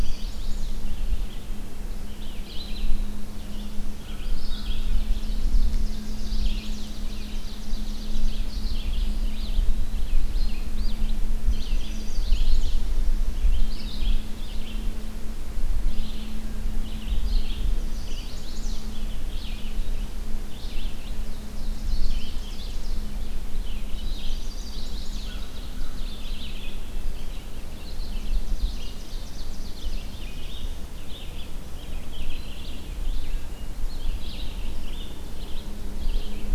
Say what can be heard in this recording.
Chestnut-sided Warbler, Red-eyed Vireo, American Crow, Ovenbird, Eastern Wood-Pewee